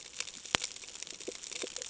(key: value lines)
label: ambient
recorder: HydroMoth